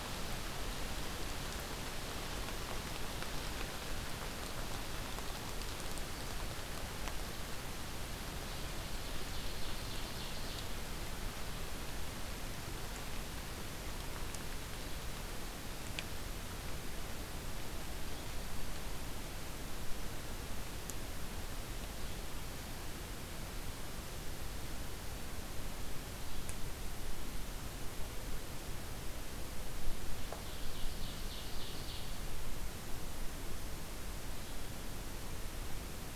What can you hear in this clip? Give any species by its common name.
Ovenbird, Black-throated Green Warbler